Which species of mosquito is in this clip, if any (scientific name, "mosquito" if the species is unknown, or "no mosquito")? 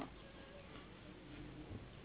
Anopheles gambiae s.s.